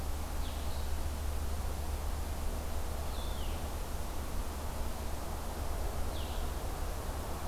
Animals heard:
Blue-headed Vireo (Vireo solitarius)

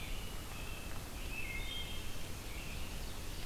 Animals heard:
Ovenbird (Seiurus aurocapilla), American Robin (Turdus migratorius), Wood Thrush (Hylocichla mustelina)

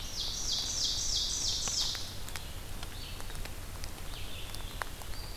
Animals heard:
Red-eyed Vireo (Vireo olivaceus), Ovenbird (Seiurus aurocapilla)

